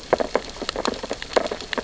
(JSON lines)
{"label": "biophony, sea urchins (Echinidae)", "recorder": "SoundTrap 600 or HydroMoth"}